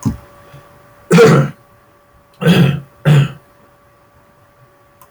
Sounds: Throat clearing